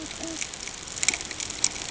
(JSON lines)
{"label": "ambient", "recorder": "HydroMoth"}